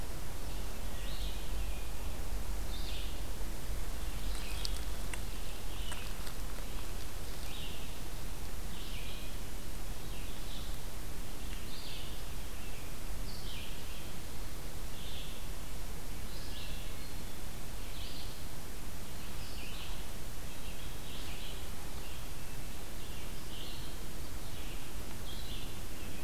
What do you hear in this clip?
Red-eyed Vireo, Hermit Thrush, American Robin